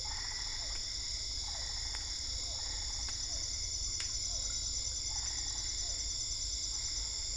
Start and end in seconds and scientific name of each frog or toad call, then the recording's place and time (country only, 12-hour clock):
0.0	3.6	Boana albopunctata
0.5	6.1	Physalaemus cuvieri
5.1	7.3	Boana albopunctata
Brazil, 8:30pm